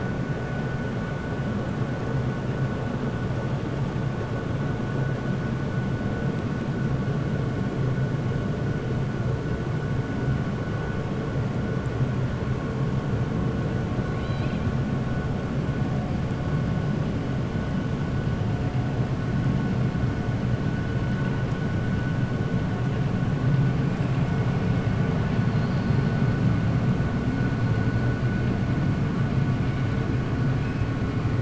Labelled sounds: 14.1	14.6	killer whale, 2.1 to 4.8 kHz

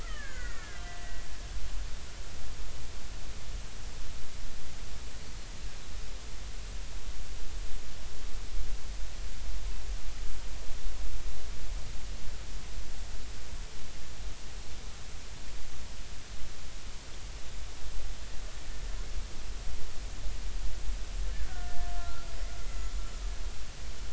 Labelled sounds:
0.0	1.2	killer whale, Bigg's (transient), 1.1 to 2.3 kHz
21.4	23.0	killer whale, Bigg's (transient), 1.3 to 7.0 kHz

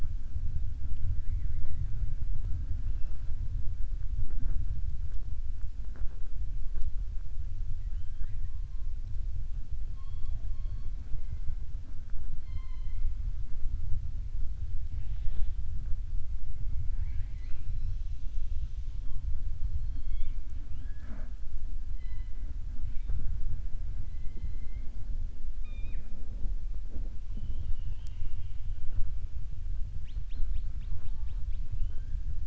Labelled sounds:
7.7	8.5	killer whale, southern resident, 0.76 to 3.9 kHz
12.3	13.1	killer whale, southern resident, 1.0 to 5.2 kHz

